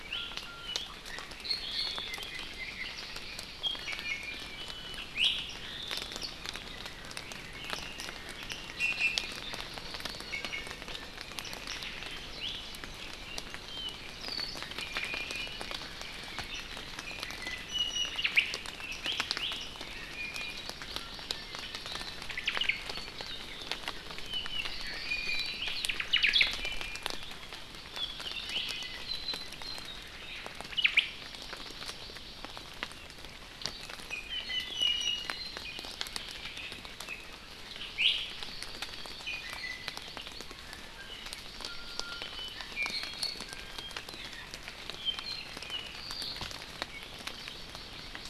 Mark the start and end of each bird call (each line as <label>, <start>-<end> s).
Iiwi (Drepanis coccinea), 0.0-0.8 s
Iiwi (Drepanis coccinea), 1.4-2.0 s
Iiwi (Drepanis coccinea), 3.6-5.4 s
Omao (Myadestes obscurus), 5.6-6.2 s
Red-billed Leiothrix (Leiothrix lutea), 6.7-8.6 s
Iiwi (Drepanis coccinea), 8.8-9.3 s
Iiwi (Drepanis coccinea), 10.2-10.7 s
Iiwi (Drepanis coccinea), 12.4-12.5 s
Apapane (Himatione sanguinea), 13.2-14.5 s
Iiwi (Drepanis coccinea), 14.8-15.6 s
Iiwi (Drepanis coccinea), 17.0-18.2 s
Omao (Myadestes obscurus), 18.1-18.5 s
Iiwi (Drepanis coccinea), 19.0-20.7 s
Hawaii Amakihi (Chlorodrepanis virens), 20.9-22.4 s
Omao (Myadestes obscurus), 22.3-22.8 s
Iiwi (Drepanis coccinea), 25.0-25.6 s
Omao (Myadestes obscurus), 25.9-26.5 s
Iiwi (Drepanis coccinea), 26.6-27.2 s
Apapane (Himatione sanguinea), 27.9-29.1 s
Omao (Myadestes obscurus), 30.7-31.0 s
Hawaii Amakihi (Chlorodrepanis virens), 31.1-32.4 s
Iiwi (Drepanis coccinea), 34.1-35.6 s
Iiwi (Drepanis coccinea), 37.9-38.3 s
Iiwi (Drepanis coccinea), 39.2-40.0 s
Hawaii Amakihi (Chlorodrepanis virens), 41.5-42.9 s
Iiwi (Drepanis coccinea), 41.6-44.0 s
Apapane (Himatione sanguinea), 44.9-46.4 s
Hawaii Amakihi (Chlorodrepanis virens), 47.0-48.3 s